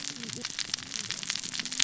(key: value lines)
label: biophony, cascading saw
recorder: SoundTrap 600 or HydroMoth